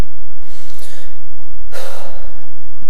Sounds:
Sigh